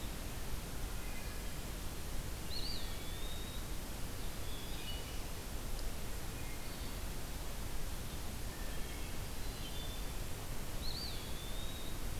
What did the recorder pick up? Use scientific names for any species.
Hylocichla mustelina, Contopus virens